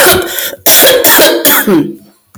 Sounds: Sigh